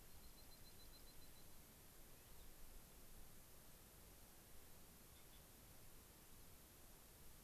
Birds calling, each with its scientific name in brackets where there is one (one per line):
Dark-eyed Junco (Junco hyemalis)
Cassin's Finch (Haemorhous cassinii)